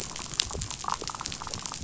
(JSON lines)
{"label": "biophony, damselfish", "recorder": "SoundTrap 500"}